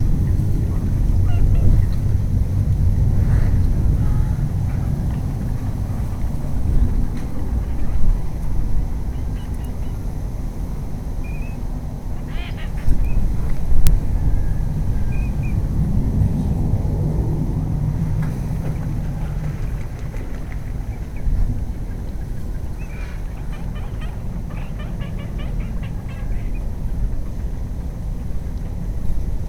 Are there ducks?
yes